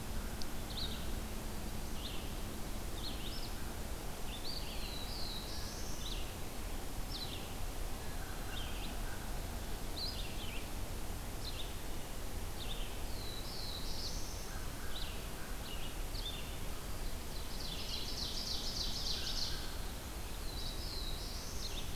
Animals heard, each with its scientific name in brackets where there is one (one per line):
American Crow (Corvus brachyrhynchos)
Red-eyed Vireo (Vireo olivaceus)
Black-throated Blue Warbler (Setophaga caerulescens)
Ovenbird (Seiurus aurocapilla)